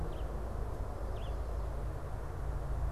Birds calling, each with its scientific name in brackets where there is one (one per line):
Red-eyed Vireo (Vireo olivaceus)